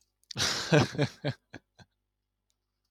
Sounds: Laughter